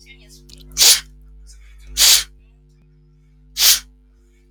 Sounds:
Sniff